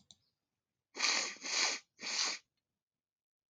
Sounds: Sniff